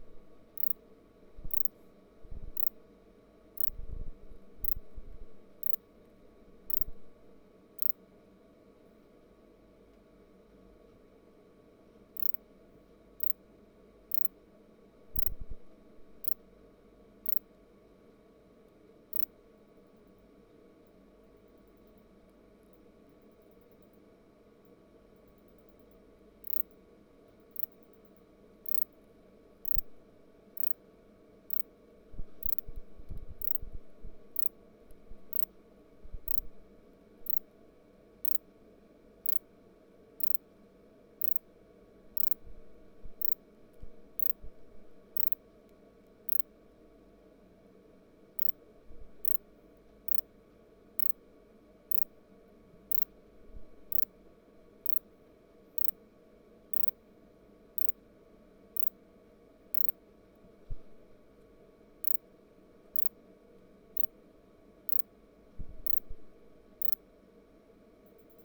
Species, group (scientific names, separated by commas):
Ancistrura nigrovittata, Orthoptera